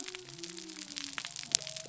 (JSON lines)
{"label": "biophony", "recorder": "SoundTrap 300"}